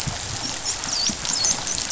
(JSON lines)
{"label": "biophony, dolphin", "recorder": "SoundTrap 500"}